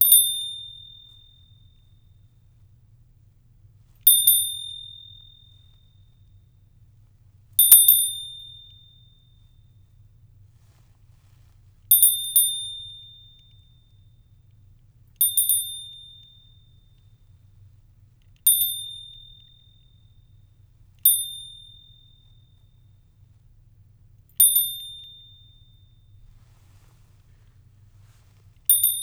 What is making the chiming sound?
bell